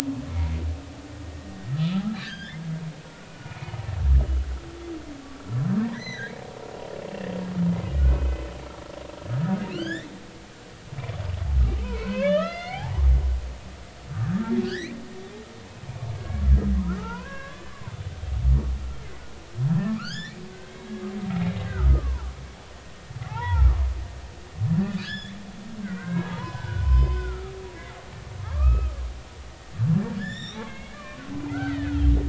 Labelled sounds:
0.3	0.6	humpback whale, 2.1 to 2.3 kHz
1.7	2.6	humpback whale, 1.2 to 5.0 kHz
3.1	3.7	humpback whale, 1.4 to 2.6 kHz
5.8	6.3	humpback whale, 1.5 to 6.2 kHz
8.0	8.4	humpback whale, 1.4 to 2.6 kHz
9.3	10.1	humpback whale, 1.3 to 5.4 kHz
11.8	13.1	humpback whale, 0.80 to 6.6 kHz
14.2	15.0	humpback whale, 1.2 to 2.5 kHz
16.2	16.4	humpback whale, 1.6 to 1.7 kHz
16.8	18.0	humpback whale, 0.83 to 1.8 kHz
19.7	20.9	humpback whale, 1.0 to 7.2 kHz
21.7	22.3	humpback whale, 0.80 to 1.7 kHz
23.2	23.9	humpback whale, 0.80 to 2.1 kHz
25.0	27.5	humpback whale, 0.80 to 7.0 kHz
28.4	29.0	humpback whale, 1.0 to 2.6 kHz
30.2	32.0	humpback whale, 1.0 to 7.6 kHz

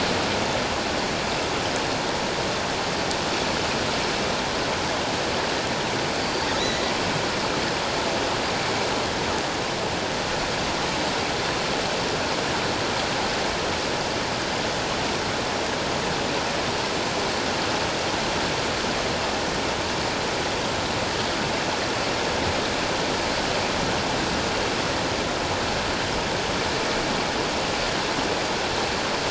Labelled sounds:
6.2	6.9	killer whale, offshore, 1.9 to 4.7 kHz

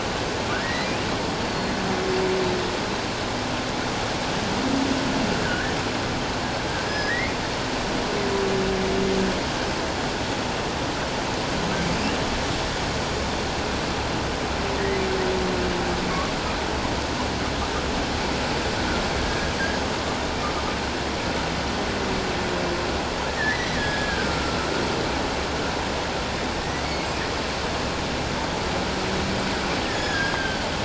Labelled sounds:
0.5	0.9	humpback whale, 1.4 to 2.1 kHz
1.5	1.8	humpback whale, 4.2 to 4.5 kHz
5.4	5.8	humpback whale, 1.4 to 1.8 kHz
6.8	7.3	humpback whale, 1.6 to 5.2 kHz
19.2	19.5	humpback whale, 1.6 to 1.7 kHz
23.4	24.6	humpback whale, 1.3 to 2.1 kHz
26.6	26.9	humpback whale, 1.8 to 2.1 kHz
29.8	30.6	humpback whale, 1.4 to 6.9 kHz

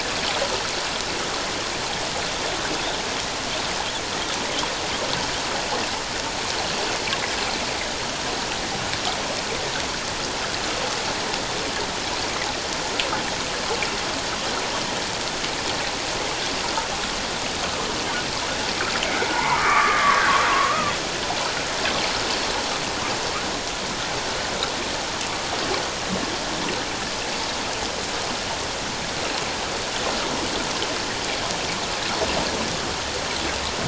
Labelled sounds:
19.0	20.2	humpback whale, 0.84 to 2.3 kHz
20.5	20.9	humpback whale, 0.97 to 1.3 kHz

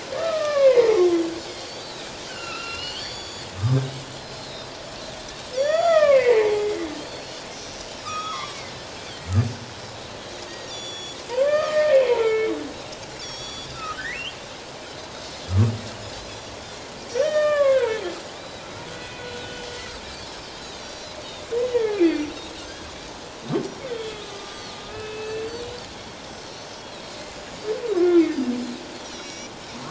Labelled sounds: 0.2	1.0	humpback whale, 0.78 to 2.4 kHz
0.6	2.1	Pacific white-sided dolphin, 3.8 to 5.2 kHz
2.3	3.5	humpback whale, 1.2 to 6.9 kHz
2.3	4.7	Pacific white-sided dolphin, 1.1 to 7.1 kHz
5.5	6.0	Pacific white-sided dolphin, 3.3 to 6.0 kHz
5.6	6.8	humpback whale, 0.78 to 7.3 kHz
7.0	8.6	Pacific white-sided dolphin, 1.0 to 7.0 kHz
8.1	8.3	humpback whale, 2.3 to 2.6 kHz
10.4	11.2	Pacific white-sided dolphin, 1.8 to 7.2 kHz
11.3	12.5	humpback whale, 0.88 to 2.6 kHz
13.2	13.8	Pacific white-sided dolphin, 3.2 to 7.1 kHz
13.4	15.1	humpback whale, 1.2 to 8.0 kHz
17.1	17.8	Pacific white-sided dolphin, 3.0 to 6.0 kHz
17.2	18.0	humpback whale, 0.88 to 4.0 kHz
18.4	18.6	humpback whale, 3.7 to 4.0 kHz
18.9	19.7	humpback whale, 1.4 to 3.1 kHz
20.6	21.2	Pacific white-sided dolphin, 3.5 to 5.8 kHz
21.7	22.2	humpback whale, 1.6 to 2.6 kHz
23.6	23.9	Pacific white-sided dolphin, 5.5 to 5.8 kHz
23.9	25.5	humpback whale, 1.2 to 3.7 kHz
24.5	24.7	Pacific white-sided dolphin, 4.1 to 4.8 kHz
25.2	25.5	Pacific white-sided dolphin, 1.7 to 4.6 kHz
27.3	27.6	Pacific white-sided dolphin, 6.6 to 6.9 kHz
29.1	29.5	Pacific white-sided dolphin, 2.2 to 7.0 kHz

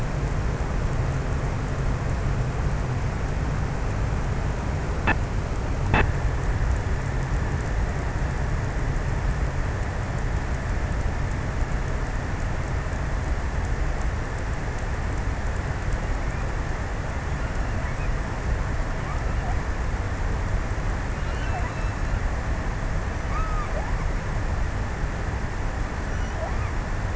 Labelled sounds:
20.7	22.7	killer whale, offshore, 0.57 to 4.0 kHz
23.0	24.0	killer whale, offshore, 0.51 to 1.6 kHz
26.1	27.1	killer whale, offshore, 0.47 to 2.5 kHz

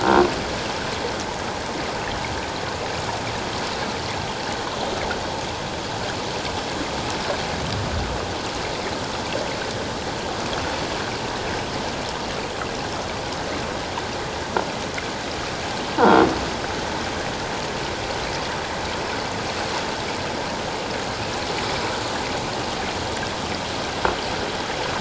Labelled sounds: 16.0	16.2	croaking sound likely from a nearby submerged object, 1.3 to 1.6 kHz

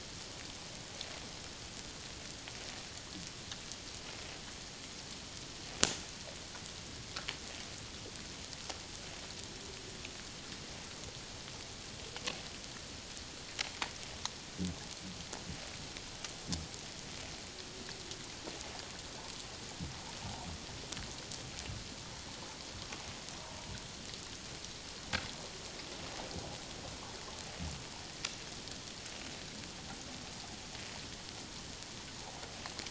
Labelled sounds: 20.2	20.5	water noise, 0.78 to 1.0 kHz

